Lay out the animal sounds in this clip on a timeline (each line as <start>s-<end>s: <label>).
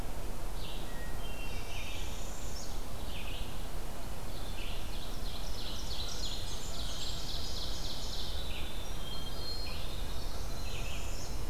0.0s-11.5s: Red-eyed Vireo (Vireo olivaceus)
0.7s-2.3s: Hermit Thrush (Catharus guttatus)
1.4s-2.7s: Northern Parula (Setophaga americana)
3.8s-6.7s: Red-breasted Nuthatch (Sitta canadensis)
4.4s-8.5s: Ovenbird (Seiurus aurocapilla)
8.9s-10.3s: Hermit Thrush (Catharus guttatus)
10.0s-11.4s: Northern Parula (Setophaga americana)